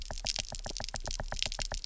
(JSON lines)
{"label": "biophony, knock", "recorder": "SoundTrap 300"}